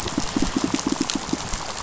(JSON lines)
{"label": "biophony, pulse", "recorder": "SoundTrap 500"}